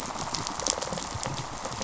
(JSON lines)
{"label": "biophony, rattle response", "recorder": "SoundTrap 500"}